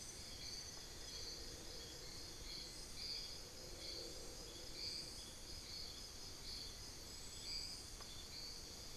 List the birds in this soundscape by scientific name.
Dendrocolaptes certhia, Glaucidium hardyi